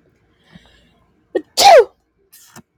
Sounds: Sneeze